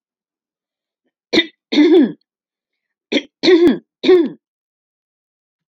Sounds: Throat clearing